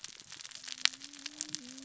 {"label": "biophony, cascading saw", "recorder": "SoundTrap 600 or HydroMoth"}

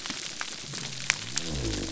{"label": "biophony", "recorder": "SoundTrap 300"}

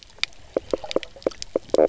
{"label": "biophony, knock croak", "recorder": "SoundTrap 300"}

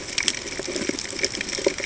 {"label": "ambient", "recorder": "HydroMoth"}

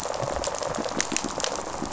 {"label": "biophony, rattle response", "recorder": "SoundTrap 500"}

